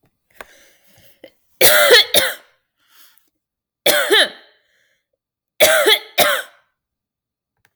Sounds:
Cough